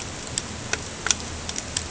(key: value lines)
label: ambient
recorder: HydroMoth